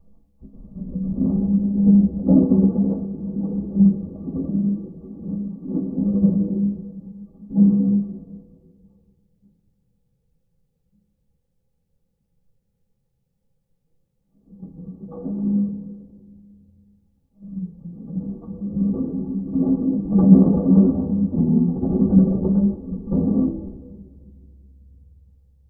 Is there a woman yelling?
no